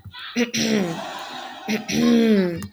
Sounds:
Throat clearing